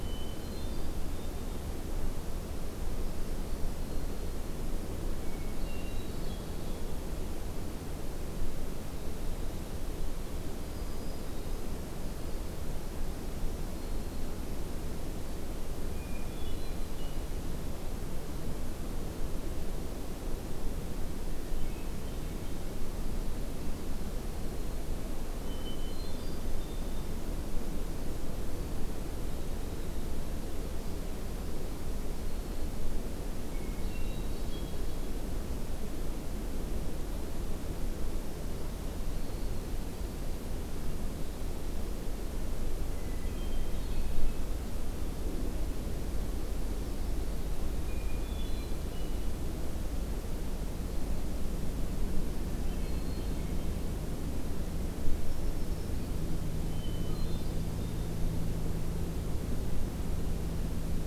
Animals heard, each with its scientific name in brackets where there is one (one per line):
Black-throated Green Warbler (Setophaga virens)
Winter Wren (Troglodytes hiemalis)
Hermit Thrush (Catharus guttatus)